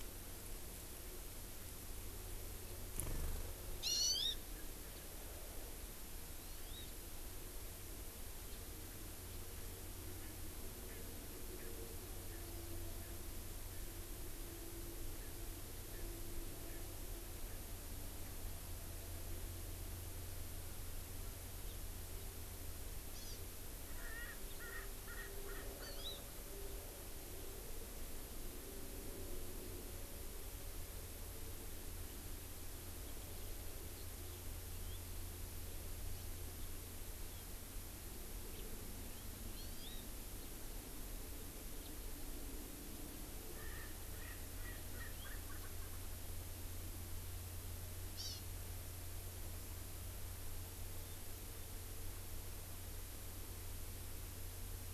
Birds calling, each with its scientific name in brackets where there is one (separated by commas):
Hawaii Amakihi (Chlorodrepanis virens), House Finch (Haemorhous mexicanus), Erckel's Francolin (Pternistis erckelii)